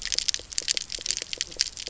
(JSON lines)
{"label": "biophony, knock croak", "recorder": "SoundTrap 300"}